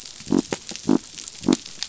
{"label": "biophony", "recorder": "SoundTrap 500"}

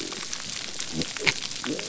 {"label": "biophony", "recorder": "SoundTrap 300"}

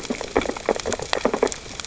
{"label": "biophony, sea urchins (Echinidae)", "recorder": "SoundTrap 600 or HydroMoth"}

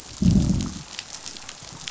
{"label": "biophony, growl", "recorder": "SoundTrap 500"}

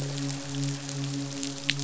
{"label": "biophony, midshipman", "recorder": "SoundTrap 500"}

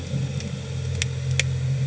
{"label": "anthrophony, boat engine", "recorder": "HydroMoth"}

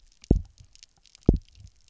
{"label": "biophony, double pulse", "recorder": "SoundTrap 300"}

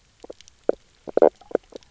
{"label": "biophony, knock croak", "recorder": "SoundTrap 300"}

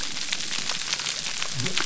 {"label": "biophony", "recorder": "SoundTrap 300"}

